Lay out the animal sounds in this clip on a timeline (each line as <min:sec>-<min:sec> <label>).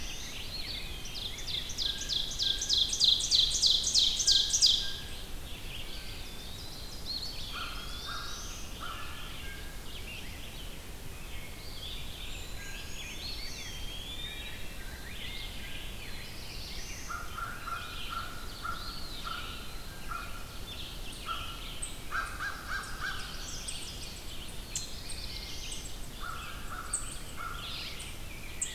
0:00.0-0:00.7 Black-throated Blue Warbler (Setophaga caerulescens)
0:00.0-0:01.8 Rose-breasted Grosbeak (Pheucticus ludovicianus)
0:00.0-0:28.7 Red-eyed Vireo (Vireo olivaceus)
0:00.3-0:01.7 Eastern Wood-Pewee (Contopus virens)
0:00.9-0:05.0 Ovenbird (Seiurus aurocapilla)
0:01.5-0:02.9 Blue Jay (Cyanocitta cristata)
0:04.2-0:05.2 Blue Jay (Cyanocitta cristata)
0:05.4-0:07.6 Ovenbird (Seiurus aurocapilla)
0:05.7-0:08.5 Eastern Wood-Pewee (Contopus virens)
0:07.5-0:09.1 American Crow (Corvus brachyrhynchos)
0:07.6-0:08.8 Black-throated Blue Warbler (Setophaga caerulescens)
0:08.9-0:09.9 Blue Jay (Cyanocitta cristata)
0:09.6-0:10.7 Rose-breasted Grosbeak (Pheucticus ludovicianus)
0:11.4-0:12.8 Eastern Wood-Pewee (Contopus virens)
0:12.2-0:13.5 Brown Creeper (Certhia americana)
0:12.5-0:17.2 Rose-breasted Grosbeak (Pheucticus ludovicianus)
0:12.7-0:13.8 Black-throated Green Warbler (Setophaga virens)
0:13.1-0:14.6 Eastern Wood-Pewee (Contopus virens)
0:15.9-0:17.3 Black-throated Blue Warbler (Setophaga caerulescens)
0:16.9-0:19.0 American Crow (Corvus brachyrhynchos)
0:17.9-0:21.7 Ovenbird (Seiurus aurocapilla)
0:18.6-0:19.9 Eastern Wood-Pewee (Contopus virens)
0:19.9-0:20.3 American Crow (Corvus brachyrhynchos)
0:21.2-0:21.5 American Crow (Corvus brachyrhynchos)
0:21.7-0:28.7 unknown mammal
0:22.1-0:23.3 American Crow (Corvus brachyrhynchos)
0:22.6-0:23.7 Black-throated Green Warbler (Setophaga virens)
0:22.8-0:24.2 Ovenbird (Seiurus aurocapilla)
0:24.5-0:25.9 Black-throated Blue Warbler (Setophaga caerulescens)
0:26.0-0:28.1 American Crow (Corvus brachyrhynchos)
0:27.3-0:28.7 Rose-breasted Grosbeak (Pheucticus ludovicianus)